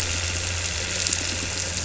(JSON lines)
{"label": "anthrophony, boat engine", "recorder": "SoundTrap 300"}
{"label": "biophony", "recorder": "SoundTrap 300"}